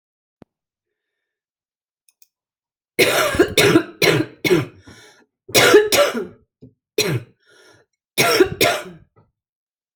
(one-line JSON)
{"expert_labels": [{"quality": "good", "cough_type": "wet", "dyspnea": false, "wheezing": false, "stridor": false, "choking": false, "congestion": false, "nothing": true, "diagnosis": "lower respiratory tract infection", "severity": "severe"}], "age": 60, "gender": "female", "respiratory_condition": false, "fever_muscle_pain": true, "status": "COVID-19"}